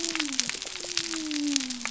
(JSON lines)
{"label": "biophony", "recorder": "SoundTrap 300"}